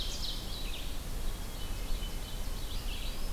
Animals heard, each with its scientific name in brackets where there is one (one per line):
Ovenbird (Seiurus aurocapilla)
Eastern Wood-Pewee (Contopus virens)
Hermit Thrush (Catharus guttatus)
Red-eyed Vireo (Vireo olivaceus)